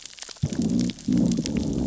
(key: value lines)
label: biophony, growl
recorder: SoundTrap 600 or HydroMoth